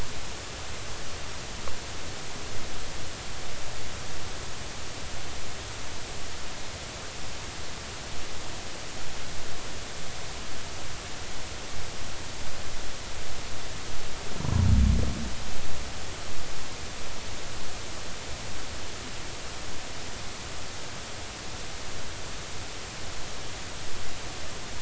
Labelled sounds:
14.4	14.7	humpback whale, 0.93 to 1.2 kHz

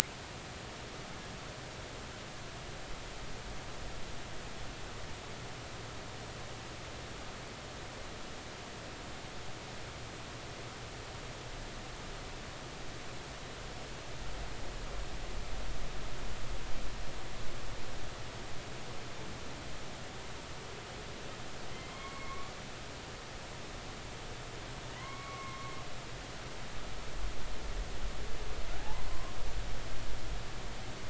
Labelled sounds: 21.7	22.5	humpback whale, 0.99 to 3.3 kHz
24.9	25.7	humpback whale, 0.93 to 2.3 kHz
29.1	29.4	humpback whale, 0.96 to 1.1 kHz

